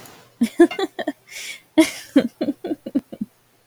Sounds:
Laughter